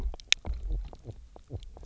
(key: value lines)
label: biophony
recorder: SoundTrap 300